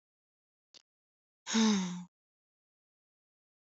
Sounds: Sigh